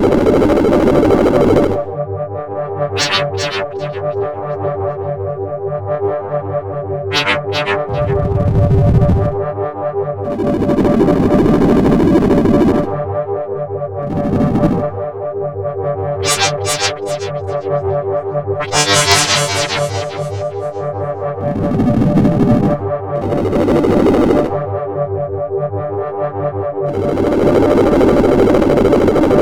Are the sounds electronic?
yes